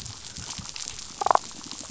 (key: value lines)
label: biophony, damselfish
recorder: SoundTrap 500